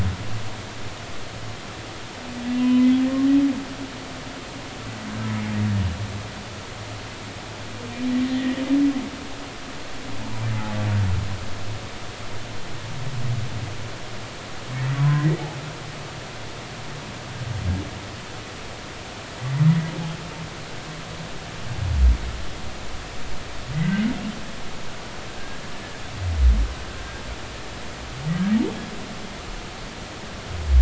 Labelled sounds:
2.5	2.9	humpback whale, 0.96 to 3.1 kHz
3.5	3.8	humpback whale, 1.9 to 2.0 kHz
15.0	15.4	humpback whale, 0.96 to 2.0 kHz
23.7	24.0	humpback whale, 1.9 to 2.2 kHz

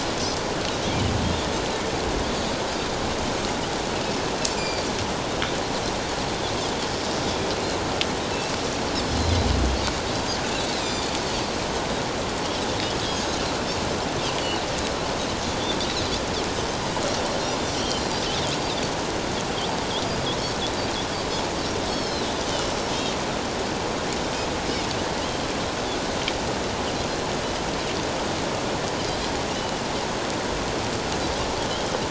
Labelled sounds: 4.5	4.9	Pacific white-sided dolphin, 2.3 to 4.9 kHz
9.2	9.5	Pacific white-sided dolphin, 3.8 to 4.2 kHz
10.8	11.1	Pacific white-sided dolphin, 2.3 to 3.7 kHz
13.1	13.4	Pacific white-sided dolphin, 6.3 to 6.7 kHz
17.8	18.0	Pacific white-sided dolphin, 3.0 to 3.3 kHz
21.9	22.3	Pacific white-sided dolphin, 3.7 to 5.6 kHz
22.9	23.1	Pacific white-sided dolphin, 3.5 to 3.8 kHz

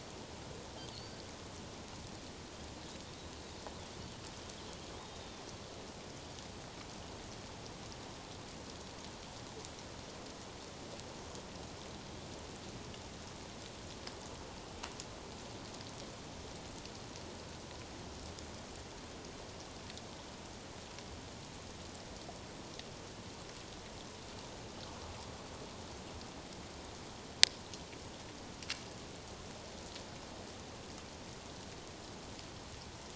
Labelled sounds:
0.9	1.2	Pacific white-sided dolphin, 4.2 to 4.7 kHz
5.0	5.4	Pacific white-sided dolphin, 3.5 to 3.8 kHz

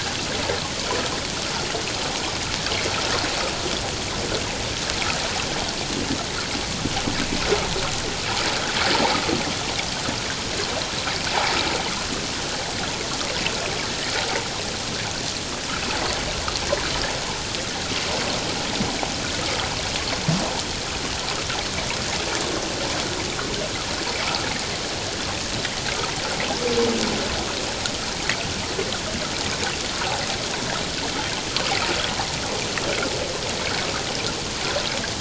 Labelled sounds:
30.0	30.3	water noise, 0.78 to 1.0 kHz

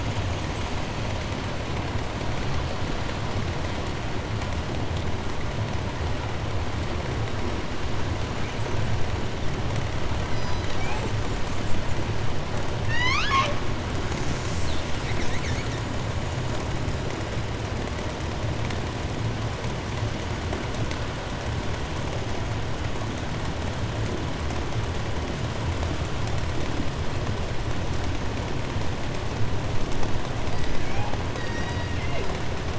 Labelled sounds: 0.3	0.9	killer whale, 7.4 to 8.0 kHz
1.8	2.5	killer whale, 7.4 to 8.0 kHz
8.2	9.2	killer whale, 5.7 to 8.0 kHz
9.9	12.3	killer whale, southern resident, call S10, 0.84 to 8.0 kHz
10.2	11.2	killer whale, southern resident, J pod, call S01, 0.69 to 6.2 kHz
12.6	13.8	killer whale, southern resident, 0.48 to 8.0 kHz
14.0	16.0	killer whale, southern resident, call S10, 0.52 to 8.0 kHz
30.3	31.2	killer whale, southern resident, 0.50 to 8.0 kHz
31.3	32.5	killer whale, southern resident, J pod, call S01, 0.17 to 7.9 kHz

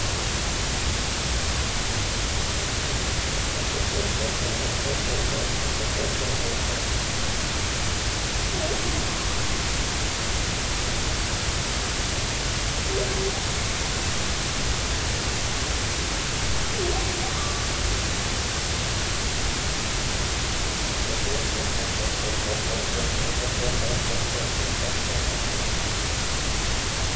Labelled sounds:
17.4	17.6	humpback whale, 1.1 to 1.3 kHz

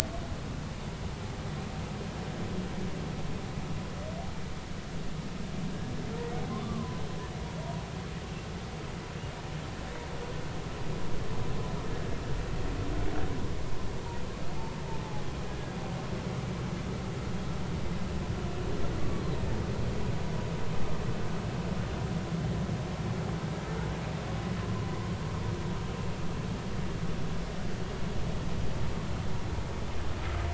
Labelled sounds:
6.5	7.0	humpback whale, 0.96 to 1.3 kHz

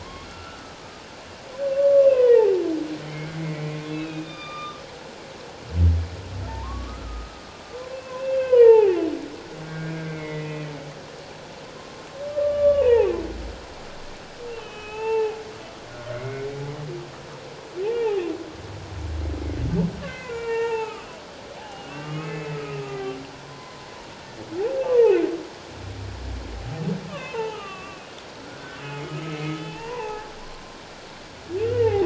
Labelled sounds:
0.0	0.7	humpback whale, 0.91 to 2.9 kHz
1.7	2.6	humpback whale, 0.78 to 3.0 kHz
3.1	4.8	humpback whale, 1.1 to 4.9 kHz
6.5	7.4	humpback whale, 0.84 to 1.4 kHz
7.9	8.9	humpback whale, 0.78 to 3.2 kHz
9.7	10.7	humpback whale, 1.5 to 2.6 kHz
12.3	13.2	humpback whale, 0.78 to 3.0 kHz
14.5	15.4	humpback whale, 0.78 to 3.2 kHz
16.1	16.5	humpback whale, 2.0 to 2.5 kHz
17.8	18.2	humpback whale, 0.78 to 2.9 kHz
20.0	21.1	humpback whale, 0.81 to 2.9 kHz
21.6	23.9	humpback whale, 0.78 to 3.0 kHz
24.9	25.2	humpback whale, 0.78 to 1.1 kHz
27.1	28.1	humpback whale, 0.81 to 3.2 kHz
28.8	32.0	humpback whale, 0.78 to 3.1 kHz

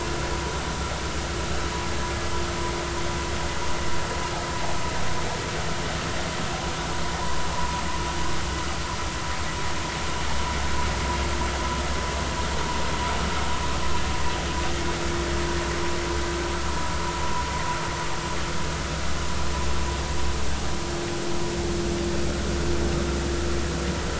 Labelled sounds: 7.5	7.8	vessel noise, 0.86 to 1.1 kHz

